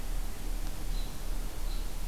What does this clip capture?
American Robin